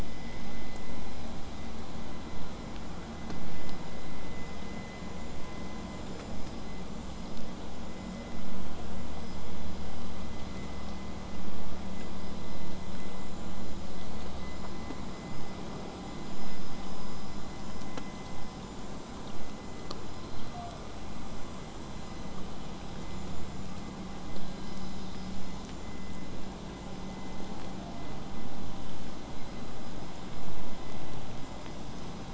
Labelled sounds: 19.9	21.0	killer whale, 0.38 to 1.3 kHz

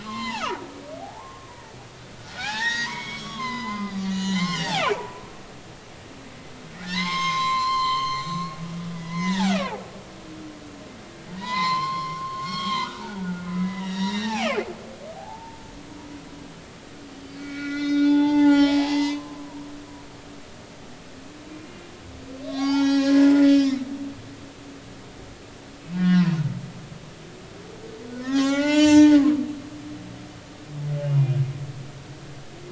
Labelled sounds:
0.0	0.6	humpback whale, 0.80 to 4.3 kHz
1.0	1.5	humpback whale, 0.80 to 1.1 kHz
2.2	5.0	humpback whale, 0.80 to 7.1 kHz
6.8	8.3	humpback whale, 0.80 to 6.5 kHz
9.0	9.8	humpback whale, 0.80 to 2.1 kHz
11.3	12.9	humpback whale, 0.83 to 7.3 kHz
13.2	15.6	humpback whale, 0.80 to 5.8 kHz
17.4	19.8	humpback whale, 0.80 to 7.2 kHz
22.4	23.8	humpback whale, 0.80 to 6.4 kHz
25.9	26.4	humpback whale, 0.93 to 2.1 kHz
28.1	29.2	humpback whale, 0.80 to 7.6 kHz
29.5	30.0	humpback whale, 2.5 to 2.8 kHz
31.0	31.4	humpback whale, 2.7 to 2.9 kHz

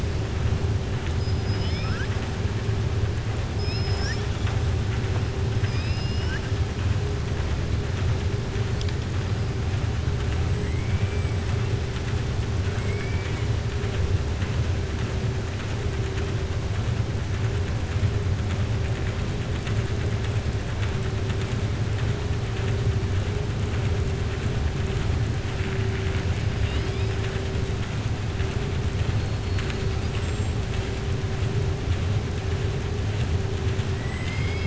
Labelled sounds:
5.5	6.5	killer whale, southern resident, 1.2 to 5.7 kHz
12.7	13.4	killer whale, southern resident, 1.1 to 8.0 kHz
26.5	27.2	killer whale, southern resident, 1.9 to 5.5 kHz
30.1	30.6	killer whale, southern resident, 6.6 to 7.9 kHz

